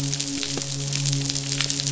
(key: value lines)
label: biophony, midshipman
recorder: SoundTrap 500